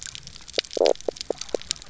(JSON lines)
{"label": "biophony, knock croak", "recorder": "SoundTrap 300"}